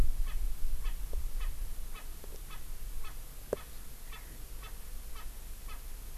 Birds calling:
Erckel's Francolin (Pternistis erckelii)

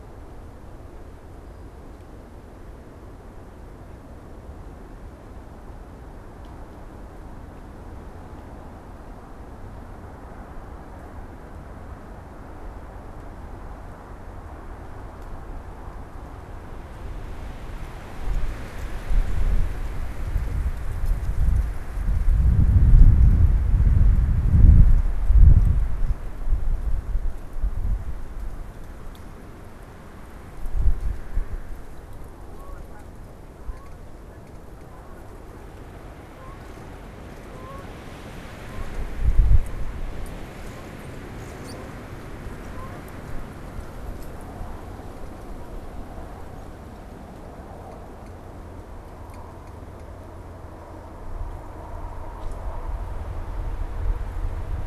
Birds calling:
Canada Goose (Branta canadensis)

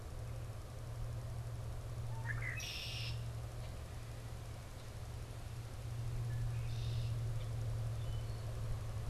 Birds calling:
Wood Thrush (Hylocichla mustelina)
Red-winged Blackbird (Agelaius phoeniceus)

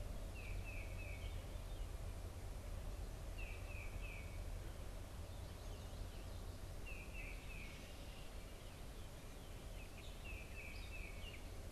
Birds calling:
Tufted Titmouse (Baeolophus bicolor)

